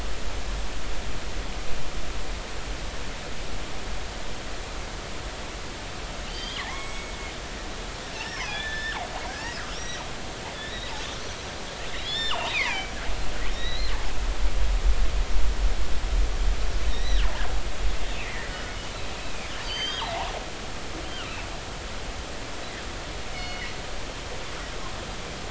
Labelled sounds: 6.2	7.2	killer whale, northern resident, G clan, call N23i, 1.7 to 7.8 kHz
8.2	9.0	killer whale, northern resident, G clan, 1.3 to 5.7 kHz
9.3	10.0	killer whale, northern resident, G clan, 1.5 to 5.9 kHz
10.5	11.4	killer whale, northern resident, G clan, 3.3 to 6.2 kHz
12.0	12.9	killer whale, northern resident, G clan, 1.9 to 5.5 kHz
13.5	13.9	killer whale, northern resident, G clan, 1.8 to 4.3 kHz
16.9	17.3	killer whale, northern resident, G clan, 1.5 to 6.0 kHz
18.2	18.5	killer whale, northern resident, G clan, 1.7 to 2.1 kHz
19.6	20.1	killer whale, northern resident, G clan, 1.5 to 6.3 kHz
21.0	21.5	killer whale, northern resident, G clan, 2.3 to 3.2 kHz
23.3	23.7	killer whale, northern resident, G clan, 1.9 to 3.0 kHz

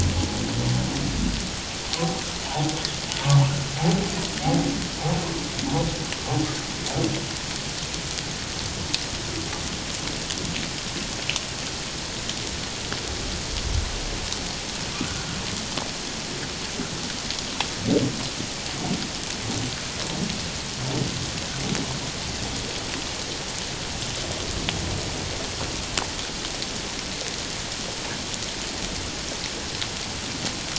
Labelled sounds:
2.5	2.7	humpback whale, 0.78 to 1.0 kHz
15.0	15.4	humpback whale, 1.4 to 1.6 kHz

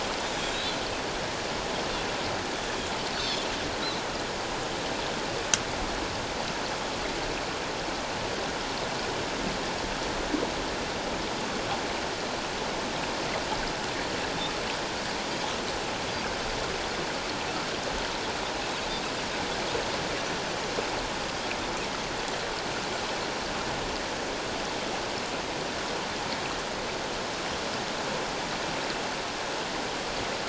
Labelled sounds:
0.5	0.8	Pacific white-sided dolphin, 3.6 to 4.1 kHz
3.1	3.5	Pacific white-sided dolphin, 3.2 to 4.5 kHz

